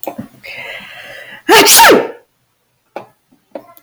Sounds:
Sneeze